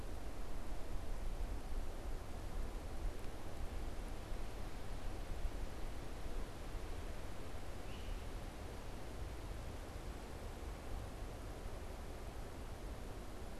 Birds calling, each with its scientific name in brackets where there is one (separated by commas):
Great Crested Flycatcher (Myiarchus crinitus)